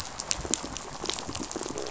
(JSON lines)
{"label": "biophony, pulse", "recorder": "SoundTrap 500"}